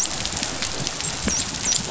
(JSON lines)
{"label": "biophony, dolphin", "recorder": "SoundTrap 500"}